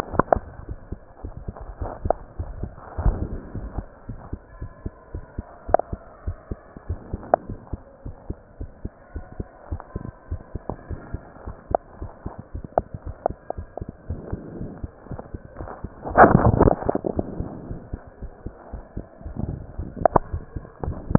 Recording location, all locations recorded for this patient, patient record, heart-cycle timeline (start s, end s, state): mitral valve (MV)
aortic valve (AV)+pulmonary valve (PV)+tricuspid valve (TV)+mitral valve (MV)
#Age: Child
#Sex: Male
#Height: 119.0 cm
#Weight: 23.8 kg
#Pregnancy status: False
#Murmur: Absent
#Murmur locations: nan
#Most audible location: nan
#Systolic murmur timing: nan
#Systolic murmur shape: nan
#Systolic murmur grading: nan
#Systolic murmur pitch: nan
#Systolic murmur quality: nan
#Diastolic murmur timing: nan
#Diastolic murmur shape: nan
#Diastolic murmur grading: nan
#Diastolic murmur pitch: nan
#Diastolic murmur quality: nan
#Outcome: Normal
#Campaign: 2015 screening campaign
0.00	0.44	unannotated
0.44	0.66	diastole
0.66	0.78	S1
0.78	0.90	systole
0.90	1.00	S2
1.00	1.22	diastole
1.22	1.36	S1
1.36	1.46	systole
1.46	1.56	S2
1.56	1.80	diastole
1.80	1.94	S1
1.94	2.00	systole
2.00	2.14	S2
2.14	2.38	diastole
2.38	2.49	S1
2.49	2.60	systole
2.60	2.74	S2
2.74	2.98	diastole
2.98	3.16	S1
3.16	3.18	systole
3.18	3.30	S2
3.30	3.56	diastole
3.56	3.70	S1
3.70	3.76	systole
3.76	3.86	S2
3.86	4.08	diastole
4.08	4.20	S1
4.20	4.28	systole
4.28	4.38	S2
4.38	4.60	diastole
4.60	4.72	S1
4.72	4.84	systole
4.84	4.94	S2
4.94	5.14	diastole
5.14	5.24	S1
5.24	5.34	systole
5.34	5.44	S2
5.44	5.68	diastole
5.68	5.78	S1
5.78	5.90	systole
5.90	6.02	S2
6.02	6.26	diastole
6.26	6.38	S1
6.38	6.50	systole
6.50	6.60	S2
6.60	6.88	diastole
6.88	7.00	S1
7.00	7.12	systole
7.12	7.22	S2
7.22	7.46	diastole
7.46	7.58	S1
7.58	7.70	systole
7.70	7.80	S2
7.80	8.06	diastole
8.06	8.16	S1
8.16	8.26	systole
8.26	8.36	S2
8.36	8.58	diastole
8.58	8.72	S1
8.72	8.82	systole
8.82	8.92	S2
8.92	9.13	diastole
9.13	9.26	S1
9.26	9.36	systole
9.36	9.46	S2
9.46	9.68	diastole
9.68	9.82	S1
9.82	9.92	systole
9.92	10.02	S2
10.02	10.28	diastole
10.28	10.42	S1
10.42	10.52	systole
10.52	10.62	S2
10.62	10.88	diastole
10.88	11.00	S1
11.00	11.08	systole
11.08	11.20	S2
11.20	11.48	diastole
11.48	11.58	S1
11.58	11.68	systole
11.68	11.76	S2
11.76	12.00	diastole
12.00	12.12	S1
12.12	12.22	systole
12.22	12.32	S2
12.32	12.56	diastole
12.56	12.68	S1
12.68	12.76	systole
12.76	12.86	S2
12.86	13.08	diastole
13.08	13.18	S1
13.18	13.26	systole
13.26	13.36	S2
13.36	13.58	diastole
13.58	21.18	unannotated